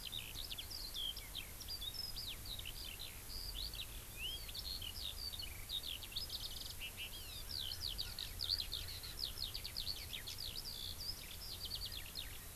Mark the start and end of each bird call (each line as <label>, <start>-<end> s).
Eurasian Skylark (Alauda arvensis), 0.0-12.5 s
Hawaii Amakihi (Chlorodrepanis virens), 7.1-7.4 s
Erckel's Francolin (Pternistis erckelii), 7.4-9.4 s